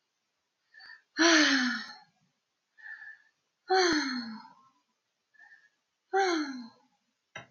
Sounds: Sigh